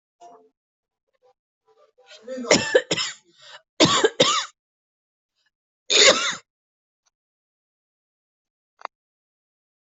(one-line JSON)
{"expert_labels": [{"quality": "good", "cough_type": "dry", "dyspnea": false, "wheezing": false, "stridor": false, "choking": false, "congestion": false, "nothing": true, "diagnosis": "upper respiratory tract infection", "severity": "severe"}], "age": 41, "gender": "female", "respiratory_condition": false, "fever_muscle_pain": false, "status": "healthy"}